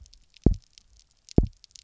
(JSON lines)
{"label": "biophony, double pulse", "recorder": "SoundTrap 300"}